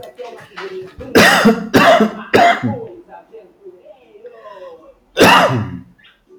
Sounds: Cough